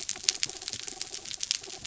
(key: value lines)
label: anthrophony, mechanical
recorder: SoundTrap 300